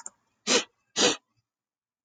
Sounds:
Sniff